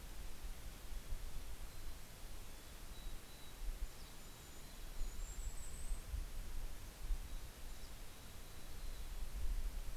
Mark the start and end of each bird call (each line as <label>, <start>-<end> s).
Mountain Chickadee (Poecile gambeli), 1.5-5.5 s
Dusky Flycatcher (Empidonax oberholseri), 2.8-8.5 s
Mountain Chickadee (Poecile gambeli), 7.4-9.6 s